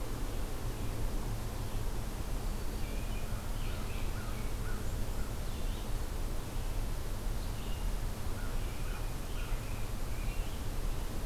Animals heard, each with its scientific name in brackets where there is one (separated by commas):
American Crow (Corvus brachyrhynchos), American Robin (Turdus migratorius), Red-eyed Vireo (Vireo olivaceus)